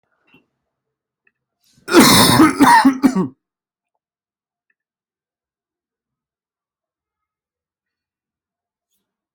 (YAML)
expert_labels:
- quality: good
  cough_type: wet
  dyspnea: false
  wheezing: false
  stridor: false
  choking: false
  congestion: false
  nothing: true
  diagnosis: healthy cough
  severity: pseudocough/healthy cough
age: 28
gender: male
respiratory_condition: false
fever_muscle_pain: true
status: symptomatic